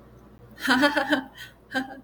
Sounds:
Laughter